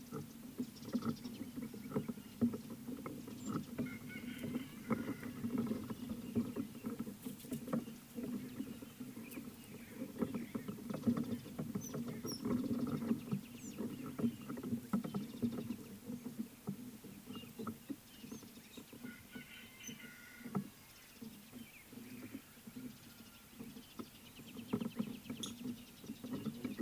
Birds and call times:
Mariqua Sunbird (Cinnyris mariquensis): 1.0s
Rufous Chatterer (Argya rubiginosa): 12.3s
Fischer's Lovebird (Agapornis fischeri): 25.5s

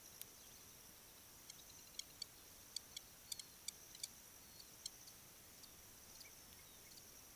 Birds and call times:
Blacksmith Lapwing (Vanellus armatus): 3.2s

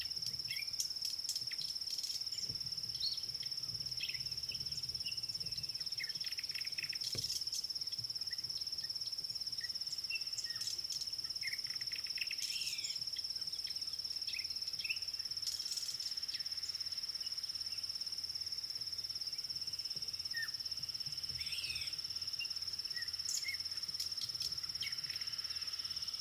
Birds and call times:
African Black-headed Oriole (Oriolus larvatus): 21.6s

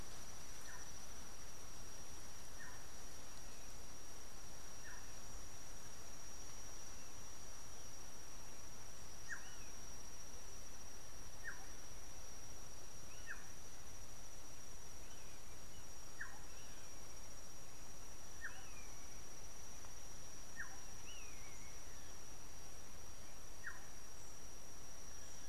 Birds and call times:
Black-tailed Oriole (Oriolus percivali): 4.9s, 11.5s, 16.3s
Common Buzzard (Buteo buteo): 21.3s

